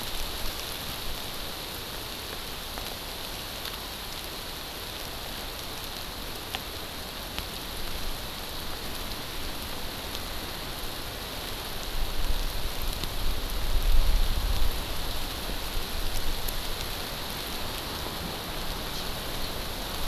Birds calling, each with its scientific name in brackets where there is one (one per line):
Hawaii Amakihi (Chlorodrepanis virens)